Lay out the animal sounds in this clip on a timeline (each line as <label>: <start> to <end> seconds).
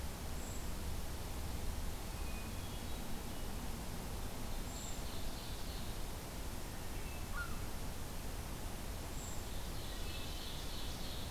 Brown Creeper (Certhia americana): 0.3 to 0.7 seconds
Hermit Thrush (Catharus guttatus): 2.2 to 3.2 seconds
Ovenbird (Seiurus aurocapilla): 4.4 to 6.0 seconds
Brown Creeper (Certhia americana): 4.6 to 5.1 seconds
Hermit Thrush (Catharus guttatus): 6.6 to 7.3 seconds
American Herring Gull (Larus smithsonianus): 7.2 to 7.6 seconds
Brown Creeper (Certhia americana): 9.1 to 9.5 seconds
Ovenbird (Seiurus aurocapilla): 9.6 to 11.3 seconds
Hermit Thrush (Catharus guttatus): 9.6 to 10.8 seconds